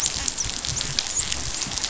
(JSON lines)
{"label": "biophony, dolphin", "recorder": "SoundTrap 500"}